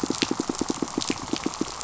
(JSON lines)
{"label": "biophony, pulse", "recorder": "SoundTrap 500"}